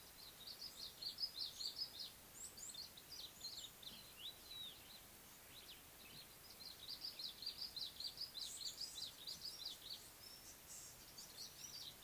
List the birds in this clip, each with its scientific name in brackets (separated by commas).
Red-faced Crombec (Sylvietta whytii), Red-cheeked Cordonbleu (Uraeginthus bengalus)